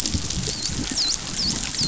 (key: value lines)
label: biophony, dolphin
recorder: SoundTrap 500